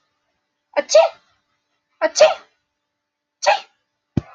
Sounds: Sneeze